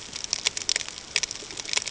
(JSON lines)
{"label": "ambient", "recorder": "HydroMoth"}